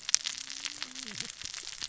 {"label": "biophony, cascading saw", "recorder": "SoundTrap 600 or HydroMoth"}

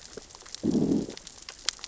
{"label": "biophony, growl", "recorder": "SoundTrap 600 or HydroMoth"}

